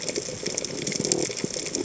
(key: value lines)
label: biophony
recorder: HydroMoth